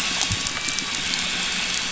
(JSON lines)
{"label": "anthrophony, boat engine", "recorder": "SoundTrap 500"}